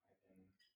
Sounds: Sneeze